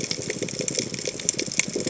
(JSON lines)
{"label": "biophony", "recorder": "HydroMoth"}